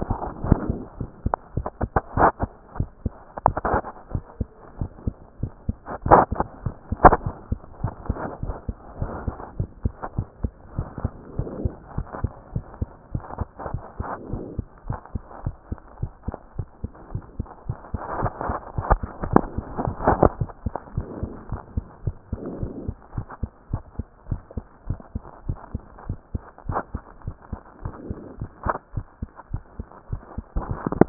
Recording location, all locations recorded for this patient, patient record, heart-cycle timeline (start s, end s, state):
mitral valve (MV)
aortic valve (AV)+pulmonary valve (PV)+tricuspid valve (TV)+mitral valve (MV)
#Age: Child
#Sex: Female
#Height: 121.0 cm
#Weight: 21.4 kg
#Pregnancy status: False
#Murmur: Absent
#Murmur locations: nan
#Most audible location: nan
#Systolic murmur timing: nan
#Systolic murmur shape: nan
#Systolic murmur grading: nan
#Systolic murmur pitch: nan
#Systolic murmur quality: nan
#Diastolic murmur timing: nan
#Diastolic murmur shape: nan
#Diastolic murmur grading: nan
#Diastolic murmur pitch: nan
#Diastolic murmur quality: nan
#Outcome: Normal
#Campaign: 2014 screening campaign
0.00	7.82	unannotated
7.82	7.94	S1
7.94	8.08	systole
8.08	8.18	S2
8.18	8.42	diastole
8.42	8.56	S1
8.56	8.68	systole
8.68	8.76	S2
8.76	9.00	diastole
9.00	9.12	S1
9.12	9.26	systole
9.26	9.34	S2
9.34	9.58	diastole
9.58	9.70	S1
9.70	9.84	systole
9.84	9.94	S2
9.94	10.16	diastole
10.16	10.28	S1
10.28	10.42	systole
10.42	10.52	S2
10.52	10.76	diastole
10.76	10.88	S1
10.88	11.02	systole
11.02	11.12	S2
11.12	11.36	diastole
11.36	11.50	S1
11.50	11.62	systole
11.62	11.72	S2
11.72	11.96	diastole
11.96	12.06	S1
12.06	12.22	systole
12.22	12.32	S2
12.32	12.54	diastole
12.54	12.64	S1
12.64	12.80	systole
12.80	12.90	S2
12.90	13.12	diastole
13.12	13.24	S1
13.24	13.38	systole
13.38	13.48	S2
13.48	13.70	diastole
13.70	13.82	S1
13.82	13.98	systole
13.98	14.06	S2
14.06	14.30	diastole
14.30	14.44	S1
14.44	14.56	systole
14.56	14.66	S2
14.66	14.88	diastole
14.88	14.98	S1
14.98	15.14	systole
15.14	15.22	S2
15.22	15.44	diastole
15.44	15.56	S1
15.56	15.70	systole
15.70	15.78	S2
15.78	16.00	diastole
16.00	16.12	S1
16.12	16.26	systole
16.26	16.36	S2
16.36	16.56	diastole
16.56	16.68	S1
16.68	16.82	systole
16.82	16.92	S2
16.92	17.12	diastole
17.12	17.24	S1
17.24	17.38	systole
17.38	17.48	S2
17.48	17.70	diastole
17.70	17.78	S1
17.78	17.92	systole
17.92	18.00	S2
18.00	18.20	diastole
18.20	18.32	S1
18.32	18.46	systole
18.46	31.09	unannotated